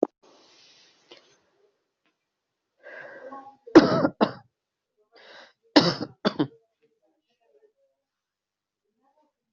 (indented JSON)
{
  "expert_labels": [
    {
      "quality": "good",
      "cough_type": "unknown",
      "dyspnea": false,
      "wheezing": false,
      "stridor": false,
      "choking": false,
      "congestion": false,
      "nothing": true,
      "diagnosis": "upper respiratory tract infection",
      "severity": "mild"
    }
  ],
  "age": 25,
  "gender": "male",
  "respiratory_condition": false,
  "fever_muscle_pain": false,
  "status": "healthy"
}